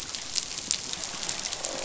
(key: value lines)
label: biophony, croak
recorder: SoundTrap 500